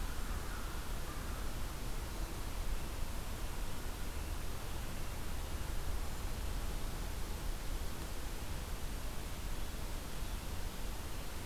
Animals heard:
forest ambience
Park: Marsh-Billings-Rockefeller National Historical Park